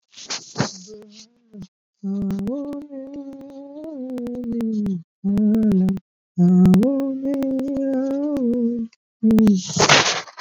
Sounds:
Sigh